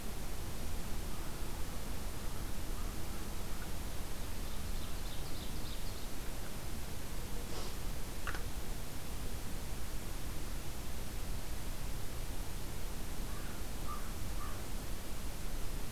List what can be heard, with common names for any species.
American Crow, Ovenbird